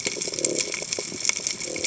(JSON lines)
{"label": "biophony", "recorder": "HydroMoth"}